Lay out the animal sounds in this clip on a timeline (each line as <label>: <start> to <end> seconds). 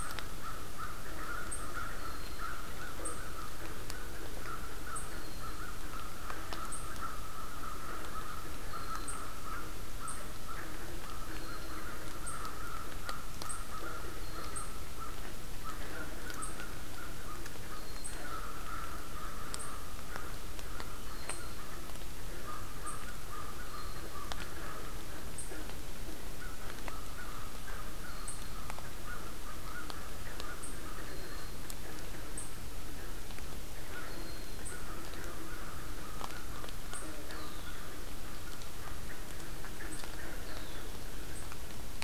American Crow (Corvus brachyrhynchos): 0.0 to 25.8 seconds
Red-winged Blackbird (Agelaius phoeniceus): 1.9 to 2.5 seconds
Red-winged Blackbird (Agelaius phoeniceus): 5.0 to 5.7 seconds
Red-winged Blackbird (Agelaius phoeniceus): 8.6 to 9.2 seconds
Red-winged Blackbird (Agelaius phoeniceus): 11.2 to 11.9 seconds
Red-winged Blackbird (Agelaius phoeniceus): 14.1 to 14.8 seconds
Red-winged Blackbird (Agelaius phoeniceus): 17.6 to 18.4 seconds
Red-winged Blackbird (Agelaius phoeniceus): 21.0 to 21.6 seconds
Red-winged Blackbird (Agelaius phoeniceus): 23.6 to 24.3 seconds
American Crow (Corvus brachyrhynchos): 26.3 to 31.7 seconds
Red-winged Blackbird (Agelaius phoeniceus): 28.0 to 28.6 seconds
Red-winged Blackbird (Agelaius phoeniceus): 30.9 to 31.7 seconds
American Crow (Corvus brachyrhynchos): 33.9 to 38.8 seconds
Red-winged Blackbird (Agelaius phoeniceus): 34.0 to 34.7 seconds
Red-winged Blackbird (Agelaius phoeniceus): 37.1 to 38.0 seconds
Red-winged Blackbird (Agelaius phoeniceus): 40.3 to 41.0 seconds